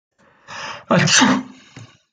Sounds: Sneeze